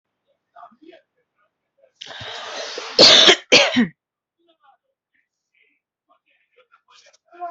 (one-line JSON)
{"expert_labels": [{"quality": "ok", "cough_type": "unknown", "dyspnea": false, "wheezing": false, "stridor": false, "choking": false, "congestion": false, "nothing": true, "diagnosis": "healthy cough", "severity": "pseudocough/healthy cough"}], "age": 33, "gender": "other", "respiratory_condition": true, "fever_muscle_pain": false, "status": "COVID-19"}